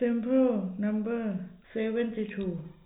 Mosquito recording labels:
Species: no mosquito; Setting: cup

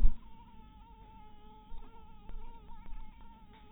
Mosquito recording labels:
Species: mosquito; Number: one; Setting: cup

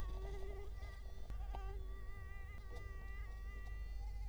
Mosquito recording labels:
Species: Culex quinquefasciatus; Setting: cup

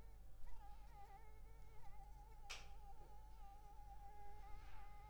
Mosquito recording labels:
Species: Anopheles arabiensis; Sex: female; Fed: unfed; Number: one; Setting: cup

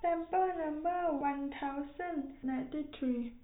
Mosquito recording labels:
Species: no mosquito; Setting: cup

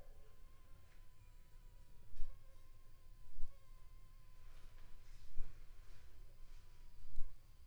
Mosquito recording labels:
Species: Anopheles funestus s.l.; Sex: female; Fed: unfed; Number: one; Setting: cup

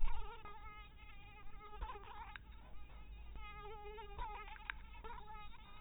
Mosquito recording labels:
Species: mosquito; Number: one; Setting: cup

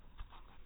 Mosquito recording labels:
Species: no mosquito; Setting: cup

